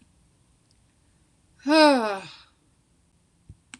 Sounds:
Sigh